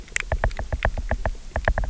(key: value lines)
label: biophony, knock
recorder: SoundTrap 300